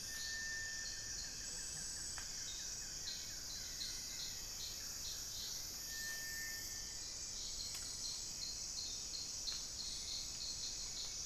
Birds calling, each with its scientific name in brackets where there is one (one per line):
Buff-throated Woodcreeper (Xiphorhynchus guttatus)